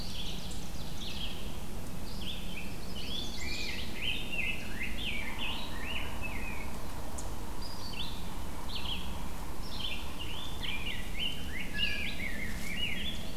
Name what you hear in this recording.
Ovenbird, Red-eyed Vireo, Chestnut-sided Warbler, Rose-breasted Grosbeak